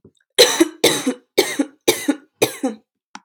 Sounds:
Cough